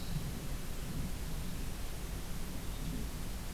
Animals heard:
forest ambience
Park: Marsh-Billings-Rockefeller National Historical Park